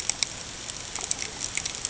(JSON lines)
{"label": "ambient", "recorder": "HydroMoth"}